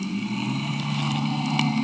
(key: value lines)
label: anthrophony, boat engine
recorder: HydroMoth